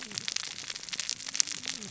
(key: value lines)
label: biophony, cascading saw
recorder: SoundTrap 600 or HydroMoth